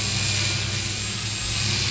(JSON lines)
{"label": "anthrophony, boat engine", "recorder": "SoundTrap 500"}